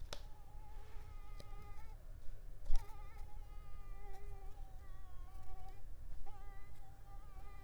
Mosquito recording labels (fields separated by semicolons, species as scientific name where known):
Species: Mansonia africanus; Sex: female; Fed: unfed; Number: one; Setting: cup